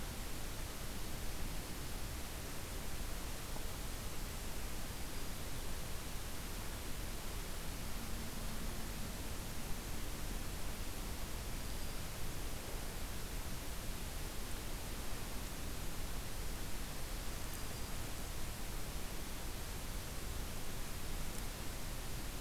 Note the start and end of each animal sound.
[11.49, 12.18] Black-throated Green Warbler (Setophaga virens)
[17.09, 18.04] Black-throated Green Warbler (Setophaga virens)

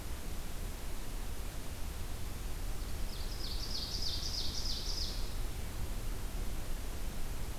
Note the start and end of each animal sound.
[2.97, 5.36] Ovenbird (Seiurus aurocapilla)

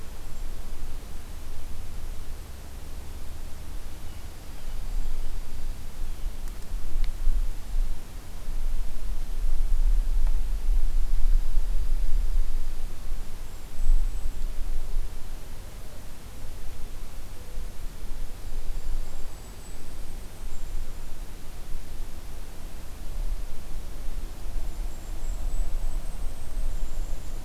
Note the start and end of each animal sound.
[3.74, 4.82] Blue Jay (Cyanocitta cristata)
[4.23, 5.97] Dark-eyed Junco (Junco hyemalis)
[10.94, 12.82] Dark-eyed Junco (Junco hyemalis)
[12.97, 14.42] Golden-crowned Kinglet (Regulus satrapa)
[18.18, 20.20] Dark-eyed Junco (Junco hyemalis)
[18.41, 21.24] Golden-crowned Kinglet (Regulus satrapa)
[24.31, 27.45] Golden-crowned Kinglet (Regulus satrapa)

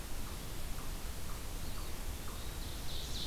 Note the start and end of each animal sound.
[1.46, 2.71] Eastern Wood-Pewee (Contopus virens)
[2.57, 3.26] Ovenbird (Seiurus aurocapilla)

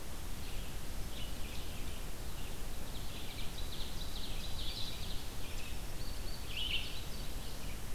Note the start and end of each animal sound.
[0.00, 5.07] Red-eyed Vireo (Vireo olivaceus)
[2.78, 5.24] Ovenbird (Seiurus aurocapilla)
[5.41, 7.66] Indigo Bunting (Passerina cyanea)
[6.30, 7.94] Red-eyed Vireo (Vireo olivaceus)

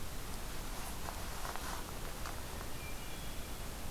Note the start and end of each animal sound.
[2.58, 3.66] Hermit Thrush (Catharus guttatus)

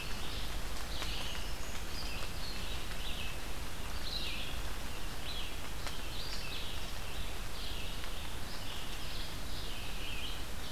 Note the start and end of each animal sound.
[0.00, 10.72] Red-eyed Vireo (Vireo olivaceus)
[0.91, 1.93] Black-throated Green Warbler (Setophaga virens)

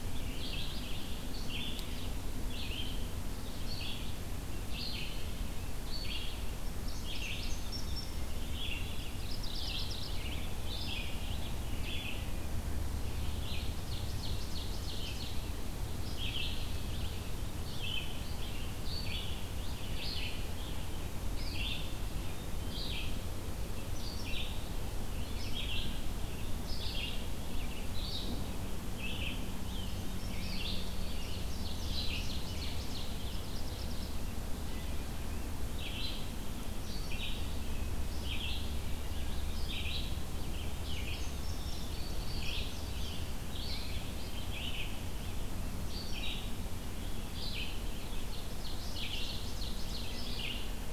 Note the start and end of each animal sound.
[0.00, 42.83] Red-eyed Vireo (Vireo olivaceus)
[6.77, 8.21] Indigo Bunting (Passerina cyanea)
[9.17, 10.47] Mourning Warbler (Geothlypis philadelphia)
[13.63, 15.56] Ovenbird (Seiurus aurocapilla)
[29.45, 32.03] Indigo Bunting (Passerina cyanea)
[31.72, 33.38] Ovenbird (Seiurus aurocapilla)
[33.30, 34.21] Mourning Warbler (Geothlypis philadelphia)
[40.64, 43.10] Indigo Bunting (Passerina cyanea)
[43.29, 50.92] Red-eyed Vireo (Vireo olivaceus)
[47.92, 50.22] Ovenbird (Seiurus aurocapilla)

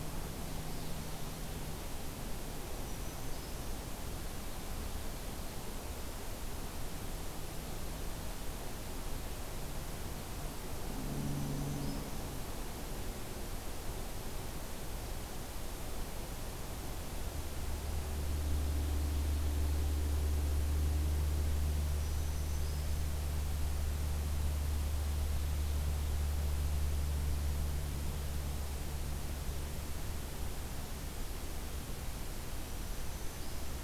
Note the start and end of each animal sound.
[2.67, 3.74] Black-throated Green Warbler (Setophaga virens)
[11.08, 12.18] Black-throated Green Warbler (Setophaga virens)
[21.74, 23.25] Black-throated Green Warbler (Setophaga virens)
[32.77, 33.83] Black-throated Green Warbler (Setophaga virens)

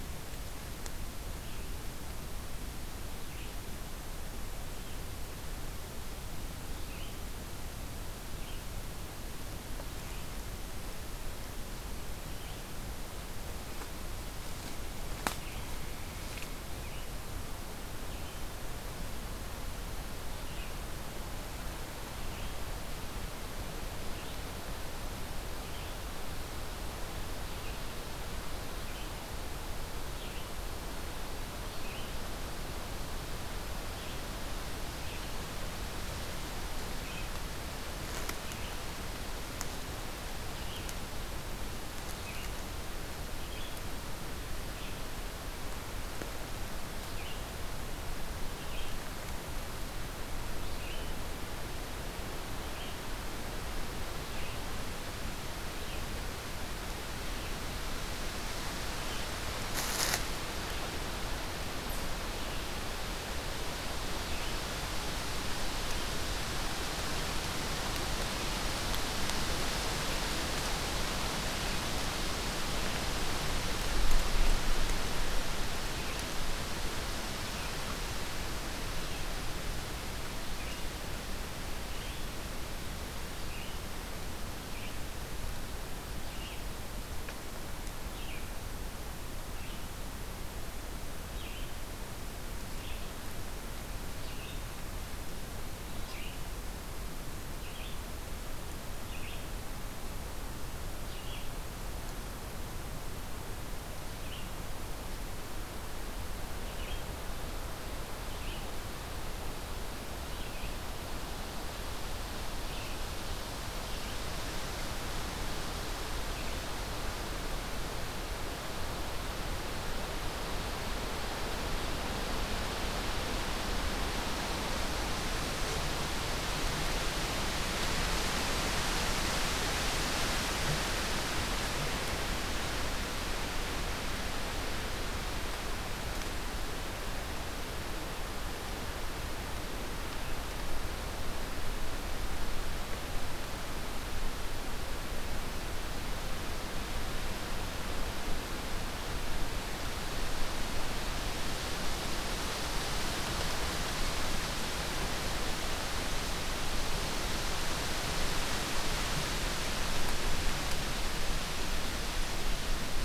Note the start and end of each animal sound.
[0.00, 57.95] Red-eyed Vireo (Vireo olivaceus)
[80.22, 116.72] Red-eyed Vireo (Vireo olivaceus)

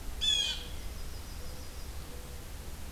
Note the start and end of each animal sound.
[0.09, 0.72] Blue Jay (Cyanocitta cristata)
[0.53, 2.38] Mourning Dove (Zenaida macroura)
[0.72, 2.04] Yellow-rumped Warbler (Setophaga coronata)

